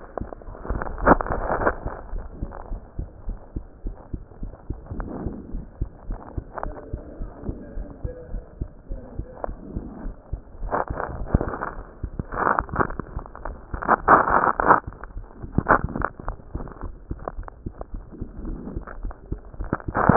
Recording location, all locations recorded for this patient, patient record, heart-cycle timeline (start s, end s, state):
mitral valve (MV)
aortic valve (AV)+pulmonary valve (PV)+tricuspid valve (TV)+mitral valve (MV)
#Age: Child
#Sex: Female
#Height: 136.0 cm
#Weight: 28.0 kg
#Pregnancy status: False
#Murmur: Absent
#Murmur locations: nan
#Most audible location: nan
#Systolic murmur timing: nan
#Systolic murmur shape: nan
#Systolic murmur grading: nan
#Systolic murmur pitch: nan
#Systolic murmur quality: nan
#Diastolic murmur timing: nan
#Diastolic murmur shape: nan
#Diastolic murmur grading: nan
#Diastolic murmur pitch: nan
#Diastolic murmur quality: nan
#Outcome: Normal
#Campaign: 2015 screening campaign
0.00	2.50	unannotated
2.50	2.68	diastole
2.68	2.80	S1
2.80	2.98	systole
2.98	3.08	S2
3.08	3.24	diastole
3.24	3.38	S1
3.38	3.52	systole
3.52	3.64	S2
3.64	3.82	diastole
3.82	3.96	S1
3.96	4.10	systole
4.10	4.22	S2
4.22	4.42	diastole
4.42	4.54	S1
4.54	4.66	systole
4.66	4.78	S2
4.78	4.92	diastole
4.92	5.06	S1
5.06	5.20	systole
5.20	5.34	S2
5.34	5.52	diastole
5.52	5.64	S1
5.64	5.78	systole
5.78	5.90	S2
5.90	6.08	diastole
6.08	6.18	S1
6.18	6.34	systole
6.34	6.44	S2
6.44	6.62	diastole
6.62	6.76	S1
6.76	6.90	systole
6.90	7.00	S2
7.00	7.18	diastole
7.18	7.30	S1
7.30	7.46	systole
7.46	7.56	S2
7.56	7.74	diastole
7.74	7.88	S1
7.88	8.02	systole
8.02	8.16	S2
8.16	8.32	diastole
8.32	8.42	S1
8.42	8.58	systole
8.58	8.68	S2
8.68	8.88	diastole
8.88	9.00	S1
9.00	9.16	systole
9.16	9.26	S2
9.26	9.44	diastole
9.44	9.56	S1
9.56	9.74	systole
9.74	9.84	S2
9.84	10.02	diastole
10.02	10.14	S1
10.14	10.30	systole
10.30	10.40	S2
10.40	10.62	diastole
10.62	10.74	S1
10.74	10.88	systole
10.88	10.98	S2
10.98	11.14	diastole
11.14	11.30	S1
11.30	11.42	systole
11.42	11.54	S2
11.54	11.72	diastole
11.72	11.84	S1
11.84	12.02	systole
12.02	12.12	S2
12.12	12.33	diastole
12.33	20.16	unannotated